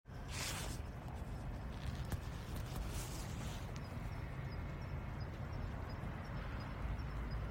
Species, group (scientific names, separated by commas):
Ornebius kanetataki, Orthoptera